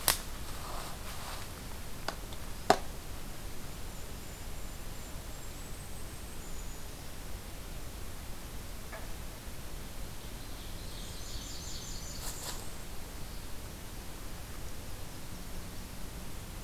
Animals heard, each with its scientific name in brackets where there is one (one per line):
Blackburnian Warbler (Setophaga fusca)
Ovenbird (Seiurus aurocapilla)
Golden-crowned Kinglet (Regulus satrapa)